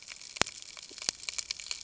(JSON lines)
{"label": "ambient", "recorder": "HydroMoth"}